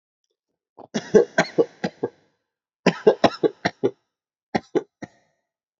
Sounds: Cough